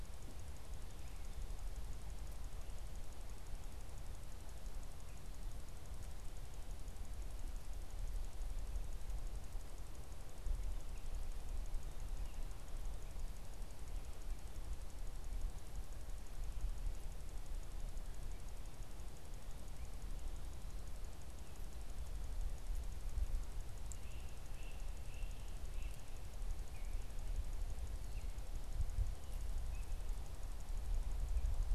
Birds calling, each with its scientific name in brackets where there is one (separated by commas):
Tufted Titmouse (Baeolophus bicolor), Great Crested Flycatcher (Myiarchus crinitus)